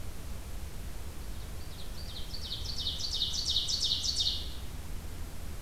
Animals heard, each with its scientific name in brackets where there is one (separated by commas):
Ovenbird (Seiurus aurocapilla)